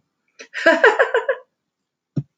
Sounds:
Laughter